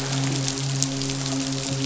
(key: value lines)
label: biophony, midshipman
recorder: SoundTrap 500